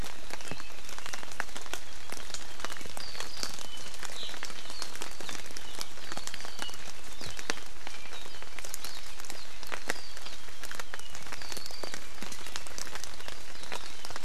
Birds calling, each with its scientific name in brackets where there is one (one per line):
Apapane (Himatione sanguinea)